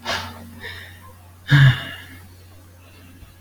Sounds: Sigh